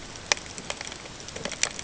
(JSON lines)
{"label": "ambient", "recorder": "HydroMoth"}